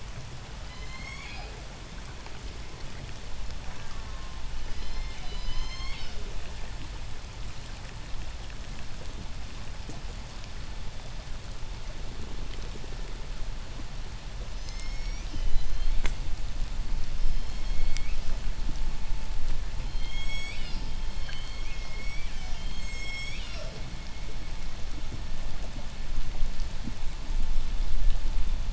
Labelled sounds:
0.4	1.7	killer whale, southern resident, J pod, call S01, 0.33 to 8.0 kHz
3.6	4.5	killer whale, southern resident, J pod, call S04, 0.55 to 2.1 kHz
4.5	5.3	killer whale, southern resident, J pod, 1.5 to 7.6 kHz
4.9	6.3	killer whale, southern resident, J pod, call S01, 0.71 to 8.0 kHz
14.4	16.0	killer whale, southern resident, J pod, 1.6 to 8.0 kHz
17.1	18.4	killer whale, southern resident, J pod, 1.8 to 8.0 kHz
19.7	23.8	killer whale, southern resident, J pod, 1.7 to 8.0 kHz

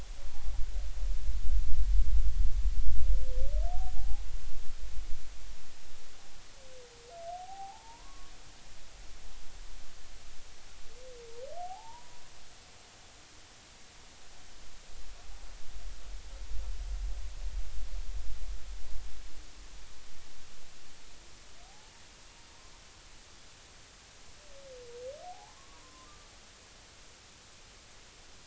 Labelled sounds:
3.7	4.2	humpback whale, 0.80 to 0.90 kHz
7.3	8.3	humpback whale, 0.80 to 1.2 kHz
11.6	12.2	humpback whale, 0.80 to 1.0 kHz
21.6	21.9	humpback whale, 0.80 to 0.90 kHz
25.2	26.1	humpback whale, 0.80 to 1.2 kHz

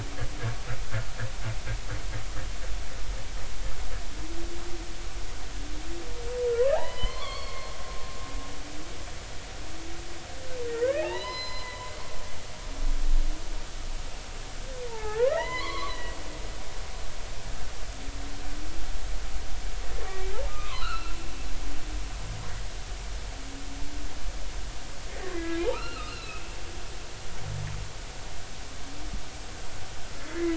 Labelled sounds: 6.7	7.7	humpback whale, 0.80 to 4.6 kHz
10.7	11.9	humpback whale, 0.80 to 5.1 kHz
14.9	16.2	humpback whale, 0.80 to 3.1 kHz
20.5	21.2	humpback whale, 0.93 to 4.4 kHz
25.3	26.4	humpback whale, 1.1 to 4.3 kHz
30.2	30.5	humpback whale, 1.9 to 2.2 kHz

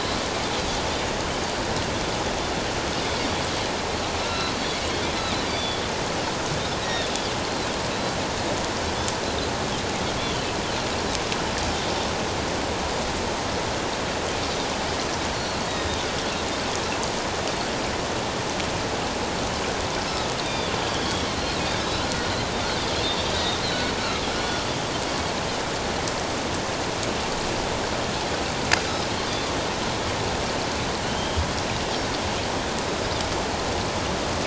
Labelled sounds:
4.2	4.5	Pacific white-sided dolphin, 1.3 to 4.1 kHz
5.5	5.8	Pacific white-sided dolphin, 3.3 to 4.8 kHz
6.8	7.1	Pacific white-sided dolphin, 1.7 to 5.8 kHz
15.3	15.6	Pacific white-sided dolphin, 4.1 to 4.5 kHz
20.4	21.3	Pacific white-sided dolphin, 3.0 to 3.7 kHz
21.8	22.3	Pacific white-sided dolphin, 1.3 to 4.0 kHz
23.3	23.6	Pacific white-sided dolphin, 3.5 to 4.0 kHz
31.0	31.5	Pacific white-sided dolphin, 2.9 to 3.3 kHz

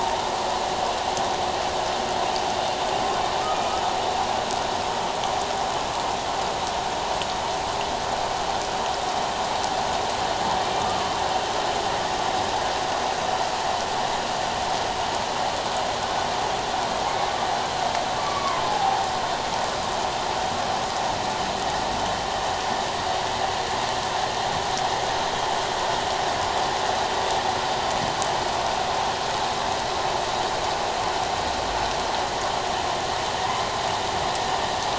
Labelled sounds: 3.4	3.6	humpback whale, 1.2 to 1.3 kHz
10.8	11.0	humpback whale, 1.16 to 1.25 kHz
18.2	19.0	humpback whale, 0.78 to 2.3 kHz

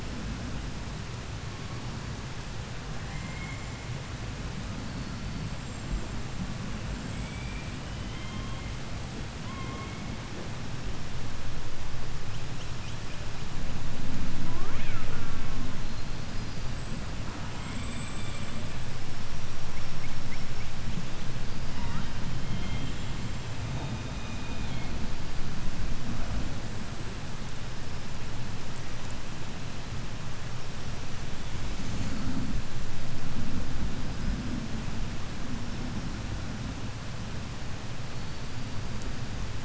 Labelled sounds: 2.9	4.3	killer whale, 0.10 to 7.5 kHz
7.0	8.9	killer whale, 0.72 to 8.0 kHz
9.2	10.4	killer whale, 0.63 to 3.7 kHz
12.1	15.8	killer whale, southern resident, call S18, 0.32 to 8.0 kHz
15.8	19.2	killer whale, 0.10 to 8.0 kHz
19.3	22.4	killer whale, southern resident, call S18, 0.38 to 8.0 kHz
22.2	23.4	killer whale, 0.82 to 4.5 kHz
23.6	25.0	killer whale, southern resident, call S16, 1.7 to 6.6 kHz
38.0	39.6	killer whale, 4.2 to 5.1 kHz

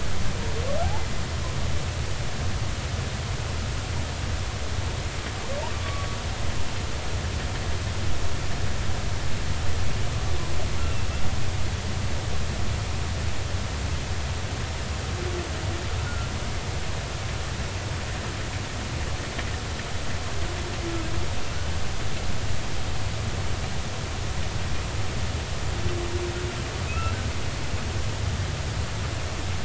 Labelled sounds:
5.8	6.1	humpback whale, 1.1 to 1.2 kHz
10.8	11.1	humpback whale, 2.6 to 2.8 kHz
16.0	16.3	humpback whale, 1.3 to 1.6 kHz
26.9	27.1	humpback whale, 2.5 to 2.8 kHz

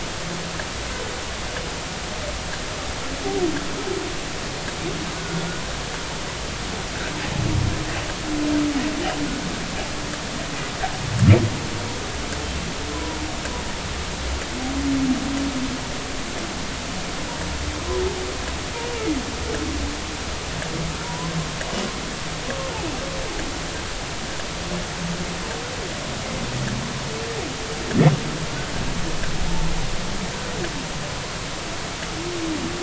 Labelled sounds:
5.2	5.5	humpback whale, 1.4 to 1.5 kHz
12.9	13.2	humpback whale, 0.90 to 1.1 kHz
21.0	21.3	humpback whale, 0.90 to 1.1 kHz

